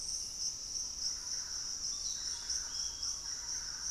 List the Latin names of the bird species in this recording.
Legatus leucophaius, Campylorhynchus turdinus